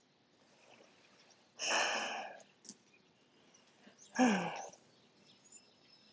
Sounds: Sigh